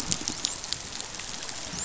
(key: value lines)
label: biophony, dolphin
recorder: SoundTrap 500